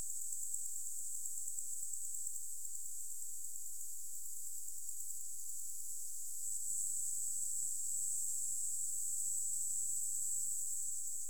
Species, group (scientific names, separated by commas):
Decticus albifrons, Orthoptera